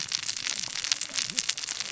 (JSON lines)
{"label": "biophony, cascading saw", "recorder": "SoundTrap 600 or HydroMoth"}